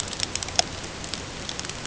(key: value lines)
label: ambient
recorder: HydroMoth